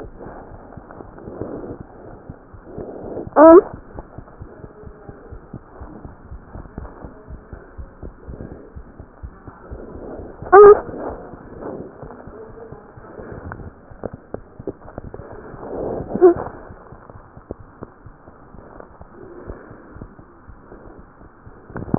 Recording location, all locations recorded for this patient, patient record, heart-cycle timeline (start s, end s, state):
aortic valve (AV)
aortic valve (AV)+pulmonary valve (PV)+tricuspid valve (TV)+mitral valve (MV)
#Age: Infant
#Sex: Male
#Height: 70.0 cm
#Weight: 8.45 kg
#Pregnancy status: False
#Murmur: Absent
#Murmur locations: nan
#Most audible location: nan
#Systolic murmur timing: nan
#Systolic murmur shape: nan
#Systolic murmur grading: nan
#Systolic murmur pitch: nan
#Systolic murmur quality: nan
#Diastolic murmur timing: nan
#Diastolic murmur shape: nan
#Diastolic murmur grading: nan
#Diastolic murmur pitch: nan
#Diastolic murmur quality: nan
#Outcome: Abnormal
#Campaign: 2015 screening campaign
0.00	3.77	unannotated
3.77	3.84	S2
3.84	3.96	diastole
3.96	4.02	S1
4.02	4.16	systole
4.16	4.24	S2
4.24	4.40	diastole
4.40	4.52	S1
4.52	4.60	systole
4.60	4.70	S2
4.70	4.84	diastole
4.84	4.94	S1
4.94	5.04	systole
5.04	5.16	S2
5.16	5.30	diastole
5.30	5.42	S1
5.42	5.52	systole
5.52	5.62	S2
5.62	5.80	diastole
5.80	5.92	S1
5.92	6.02	systole
6.02	6.14	S2
6.14	6.30	diastole
6.30	6.44	S1
6.44	6.50	systole
6.50	6.60	S2
6.60	6.76	diastole
6.76	6.92	S1
6.92	7.02	systole
7.02	7.12	S2
7.12	7.30	diastole
7.30	7.42	S1
7.42	7.50	systole
7.50	7.62	S2
7.62	7.78	diastole
7.78	7.92	S1
7.92	8.04	systole
8.04	8.14	S2
8.14	8.28	diastole
8.28	8.42	S1
8.42	8.50	systole
8.50	8.60	S2
8.60	8.74	diastole
8.74	8.88	S1
8.88	8.98	systole
8.98	9.06	S2
9.06	9.20	diastole
9.20	9.34	S1
9.34	9.46	systole
9.46	9.54	S2
9.54	9.72	diastole
9.72	9.78	S1
9.78	9.93	systole
9.93	10.01	S2
10.01	21.98	unannotated